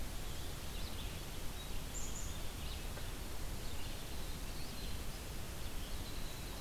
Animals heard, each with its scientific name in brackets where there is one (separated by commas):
Winter Wren (Troglodytes hiemalis), Black-capped Chickadee (Poecile atricapillus), Red-eyed Vireo (Vireo olivaceus)